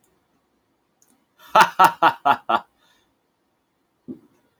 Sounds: Laughter